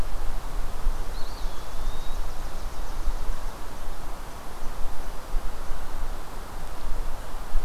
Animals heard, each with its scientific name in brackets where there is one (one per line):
Eastern Wood-Pewee (Contopus virens)
Chipping Sparrow (Spizella passerina)